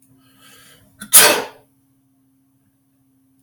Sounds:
Sneeze